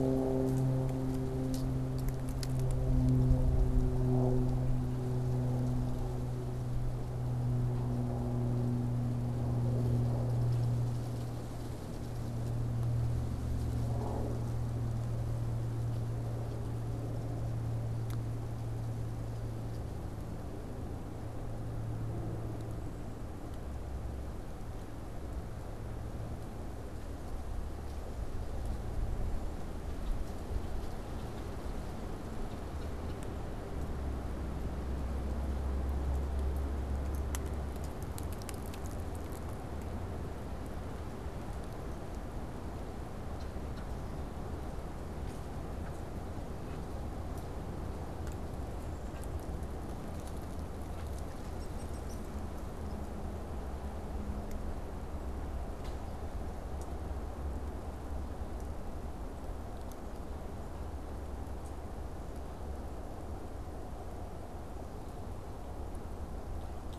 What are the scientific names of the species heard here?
unidentified bird